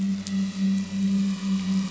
{"label": "anthrophony, boat engine", "recorder": "SoundTrap 500"}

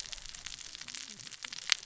{"label": "biophony, cascading saw", "recorder": "SoundTrap 600 or HydroMoth"}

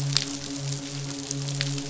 {"label": "biophony, midshipman", "recorder": "SoundTrap 500"}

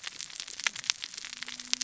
{"label": "biophony, cascading saw", "recorder": "SoundTrap 600 or HydroMoth"}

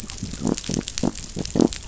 {"label": "biophony", "recorder": "SoundTrap 500"}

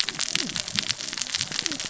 {"label": "biophony, cascading saw", "recorder": "SoundTrap 600 or HydroMoth"}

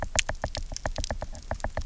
{"label": "biophony, knock", "recorder": "SoundTrap 300"}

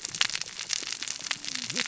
{"label": "biophony, cascading saw", "recorder": "SoundTrap 600 or HydroMoth"}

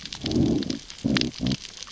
{"label": "biophony, growl", "recorder": "SoundTrap 600 or HydroMoth"}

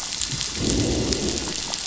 {"label": "biophony, growl", "recorder": "SoundTrap 500"}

